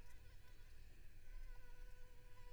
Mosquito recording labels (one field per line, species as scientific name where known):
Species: Anopheles arabiensis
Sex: female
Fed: unfed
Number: one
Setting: cup